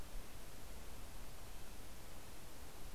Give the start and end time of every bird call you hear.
0.0s-2.9s: Red-breasted Nuthatch (Sitta canadensis)

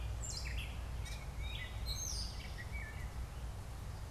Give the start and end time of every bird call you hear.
0.0s-4.1s: Gray Catbird (Dumetella carolinensis)
1.0s-1.8s: Tufted Titmouse (Baeolophus bicolor)
1.6s-3.0s: Eastern Towhee (Pipilo erythrophthalmus)

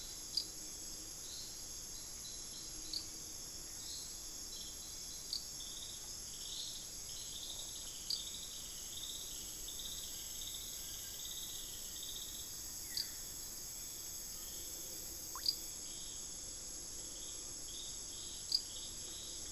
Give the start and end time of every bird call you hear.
0.0s-13.5s: Hauxwell's Thrush (Turdus hauxwelli)
8.9s-13.0s: Rufous-fronted Antthrush (Formicarius rufifrons)
10.6s-11.3s: unidentified bird
12.6s-13.3s: Buff-throated Woodcreeper (Xiphorhynchus guttatus)
14.1s-14.6s: unidentified bird
17.1s-17.7s: Collared Forest-Falcon (Micrastur semitorquatus)

